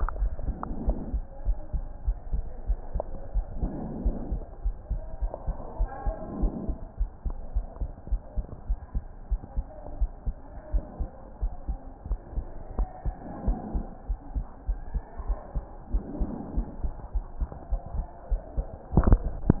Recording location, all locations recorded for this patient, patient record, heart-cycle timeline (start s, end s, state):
pulmonary valve (PV)
aortic valve (AV)+pulmonary valve (PV)+tricuspid valve (TV)+mitral valve (MV)
#Age: Child
#Sex: Male
#Height: 130.0 cm
#Weight: 30.4 kg
#Pregnancy status: False
#Murmur: Absent
#Murmur locations: nan
#Most audible location: nan
#Systolic murmur timing: nan
#Systolic murmur shape: nan
#Systolic murmur grading: nan
#Systolic murmur pitch: nan
#Systolic murmur quality: nan
#Diastolic murmur timing: nan
#Diastolic murmur shape: nan
#Diastolic murmur grading: nan
#Diastolic murmur pitch: nan
#Diastolic murmur quality: nan
#Outcome: Abnormal
#Campaign: 2015 screening campaign
0.00	1.34	unannotated
1.34	1.46	diastole
1.46	1.58	S1
1.58	1.70	systole
1.70	1.84	S2
1.84	2.04	diastole
2.04	2.18	S1
2.18	2.30	systole
2.30	2.46	S2
2.46	2.66	diastole
2.66	2.80	S1
2.80	2.92	systole
2.92	3.06	S2
3.06	3.34	diastole
3.34	3.46	S1
3.46	3.60	systole
3.60	3.74	S2
3.74	3.96	diastole
3.96	4.14	S1
4.14	4.28	systole
4.28	4.42	S2
4.42	4.64	diastole
4.64	4.76	S1
4.76	4.88	systole
4.88	5.02	S2
5.02	5.22	diastole
5.22	5.32	S1
5.32	5.46	systole
5.46	5.56	S2
5.56	5.78	diastole
5.78	5.90	S1
5.90	6.04	systole
6.04	6.14	S2
6.14	6.40	diastole
6.40	6.52	S1
6.52	6.62	systole
6.62	6.76	S2
6.76	6.98	diastole
6.98	7.10	S1
7.10	7.24	systole
7.24	7.36	S2
7.36	7.54	diastole
7.54	7.68	S1
7.68	7.80	systole
7.80	7.92	S2
7.92	8.10	diastole
8.10	8.20	S1
8.20	8.36	systole
8.36	8.48	S2
8.48	8.68	diastole
8.68	8.78	S1
8.78	8.92	systole
8.92	9.04	S2
9.04	9.30	diastole
9.30	9.40	S1
9.40	9.56	systole
9.56	9.66	S2
9.66	9.94	diastole
9.94	10.10	S1
10.10	10.26	systole
10.26	10.38	S2
10.38	10.68	diastole
10.68	10.82	S1
10.82	11.00	systole
11.00	11.12	S2
11.12	11.42	diastole
11.42	11.54	S1
11.54	11.68	systole
11.68	11.80	S2
11.80	12.06	diastole
12.06	12.18	S1
12.18	12.34	systole
12.34	12.48	S2
12.48	12.76	diastole
12.76	12.88	S1
12.88	13.06	systole
13.06	13.16	S2
13.16	13.44	diastole
13.44	13.60	S1
13.60	13.74	systole
13.74	13.86	S2
13.86	14.08	diastole
14.08	14.18	S1
14.18	14.34	systole
14.34	14.46	S2
14.46	14.68	diastole
14.68	14.80	S1
14.80	14.92	systole
14.92	15.02	S2
15.02	15.24	diastole
15.24	15.38	S1
15.38	15.54	systole
15.54	15.64	S2
15.64	15.92	diastole
15.92	16.06	S1
16.06	16.20	systole
16.20	16.30	S2
16.30	16.54	diastole
16.54	16.66	S1
16.66	16.80	systole
16.80	16.92	S2
16.92	17.14	diastole
17.14	17.26	S1
17.26	17.40	systole
17.40	17.50	S2
17.50	17.70	diastole
17.70	17.80	S1
17.80	17.92	systole
17.92	18.06	S2
18.06	18.30	diastole
18.30	19.60	unannotated